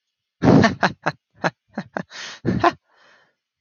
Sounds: Laughter